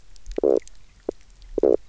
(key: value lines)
label: biophony, knock croak
recorder: SoundTrap 300